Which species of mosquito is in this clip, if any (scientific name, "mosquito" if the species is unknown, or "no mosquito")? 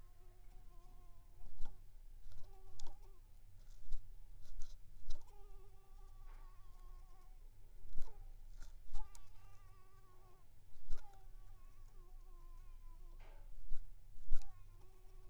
Anopheles squamosus